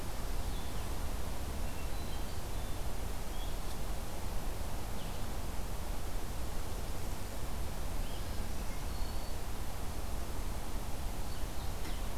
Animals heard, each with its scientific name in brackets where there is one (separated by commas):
Blue-headed Vireo (Vireo solitarius), Black-throated Green Warbler (Setophaga virens)